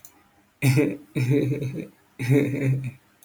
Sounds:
Laughter